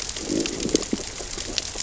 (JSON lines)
{"label": "biophony, growl", "recorder": "SoundTrap 600 or HydroMoth"}